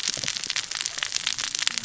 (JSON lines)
{"label": "biophony, cascading saw", "recorder": "SoundTrap 600 or HydroMoth"}